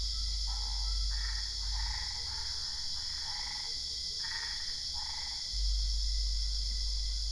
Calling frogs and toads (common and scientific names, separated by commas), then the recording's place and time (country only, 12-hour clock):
Boana albopunctata
Brazil, 1:00am